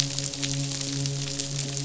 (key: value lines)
label: biophony, midshipman
recorder: SoundTrap 500